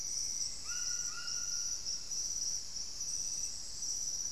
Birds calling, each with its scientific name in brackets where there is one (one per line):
White-throated Toucan (Ramphastos tucanus)
Black-faced Antthrush (Formicarius analis)